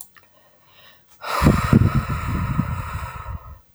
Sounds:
Sigh